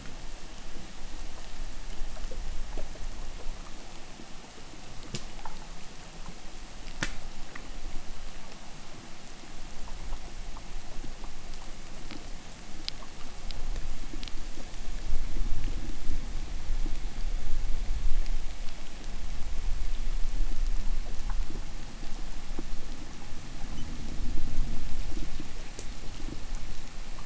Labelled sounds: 11.3	14.6	undetermined biological sound, 1.8 to 8.0 kHz

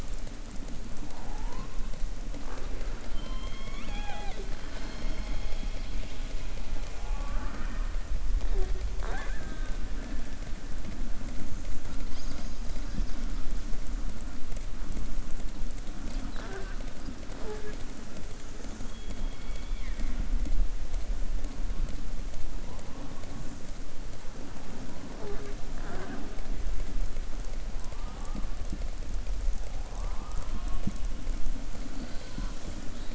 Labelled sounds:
3.0	4.5	killer whale, southern resident, 0.37 to 4.6 kHz

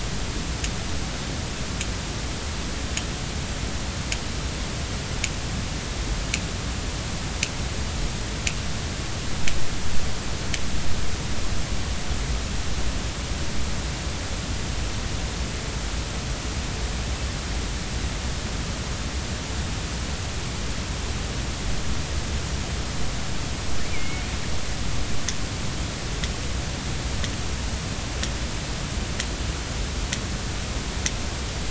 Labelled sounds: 23.9	24.3	killer whale, northern resident, A clan, AB subclan, 2.1 to 2.4 kHz

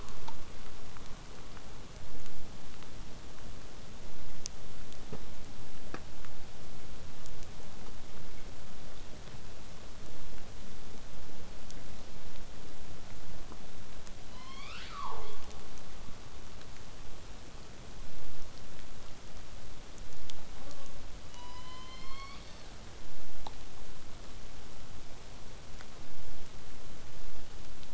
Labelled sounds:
0.0	5.0	vessel noise, 0 to 8.0 kHz
14.3	15.5	killer whale, southern resident, J pod, call S01, 0.31 to 6.8 kHz
20.5	21.1	killer whale, southern resident, J pod, call S04, 0.15 to 1.5 kHz
21.3	22.7	killer whale, southern resident, J pod, call S01, 0.81 to 8.0 kHz

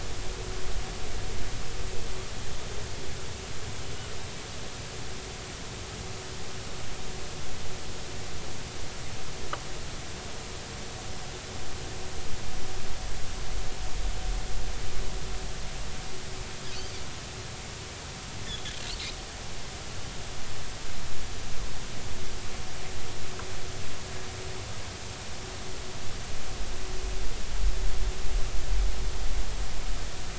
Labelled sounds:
18.5	18.7	Pacific white-sided dolphin, 3.2 to 3.6 kHz

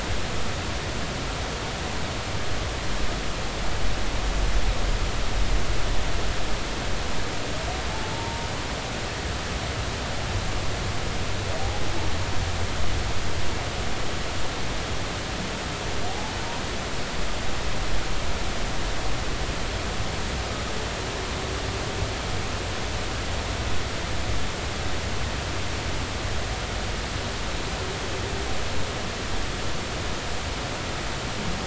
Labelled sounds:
7.9	8.5	humpback whale, 0.83 to 0.96 kHz
16.1	16.3	humpback whale, 0.80 to 0.90 kHz

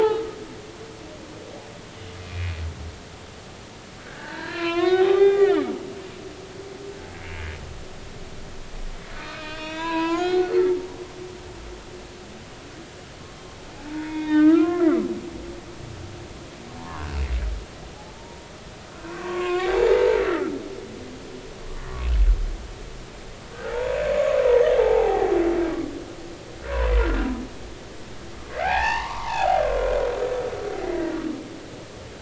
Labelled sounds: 2.2	2.6	humpback whale, 2.3 to 2.6 kHz
4.0	5.7	humpback whale, 0.80 to 4.3 kHz
9.2	10.5	humpback whale, 0.80 to 6.9 kHz
11.0	11.5	humpback whale, 1.3 to 1.5 kHz
13.9	14.9	humpback whale, 0.86 to 3.8 kHz
16.8	17.0	humpback whale, 0.80 to 1.2 kHz
18.1	18.4	humpback whale, 0.86 to 0.99 kHz
19.1	20.2	humpback whale, 0.80 to 3.3 kHz
23.7	24.4	humpback whale, 0.80 to 7.1 kHz
24.8	25.3	humpback whale, 0.80 to 0.96 kHz
26.6	27.3	humpback whale, 0.93 to 1.7 kHz
28.5	29.6	humpback whale, 0.80 to 3.0 kHz

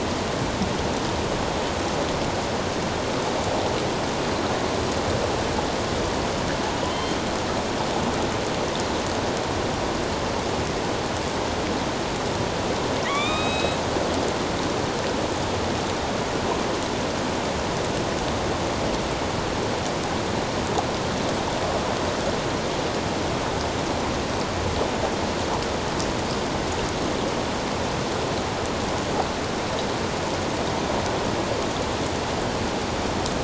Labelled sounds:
6.9	7.2	killer whale, northern resident, A clan, AB subclan, 3.0 to 3.2 kHz
13.0	13.8	killer whale, northern resident, A clan, AB subclan, 1.1 to 7.8 kHz

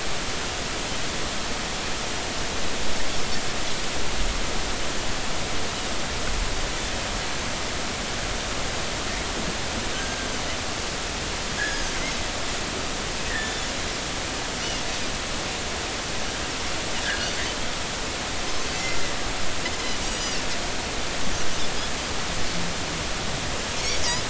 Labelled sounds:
9.9	10.3	Pacific white-sided dolphin, 1.5 to 1.6 kHz
11.6	11.9	Pacific white-sided dolphin, 1.6 to 5.1 kHz
13.3	13.6	Pacific white-sided dolphin, 1.6 to 2.0 kHz
17.0	17.3	Pacific white-sided dolphin, 1.5 to 1.8 kHz
18.8	19.0	Pacific white-sided dolphin, 6.8 to 7.0 kHz
20.1	20.4	Pacific white-sided dolphin, 2.6 to 6.0 kHz
23.7	24.0	Pacific white-sided dolphin, 2.1 to 2.5 kHz

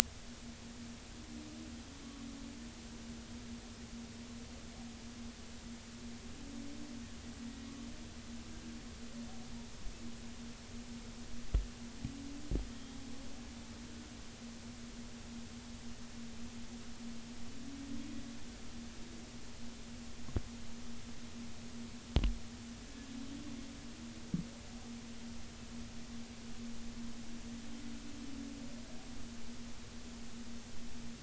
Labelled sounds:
12.7	13.0	humpback whale, 3.2 to 3.3 kHz

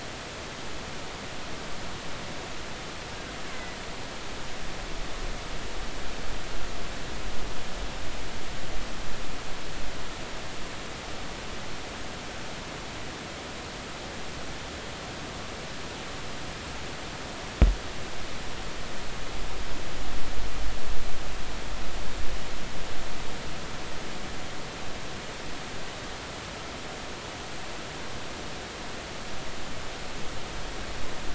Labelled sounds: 3.5	3.8	killer whale, Bigg's (transient), 1.9 to 2.1 kHz

